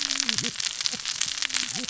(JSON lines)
{"label": "biophony, cascading saw", "recorder": "SoundTrap 600 or HydroMoth"}